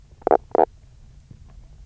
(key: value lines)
label: biophony, stridulation
recorder: SoundTrap 300